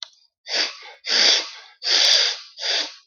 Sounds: Sniff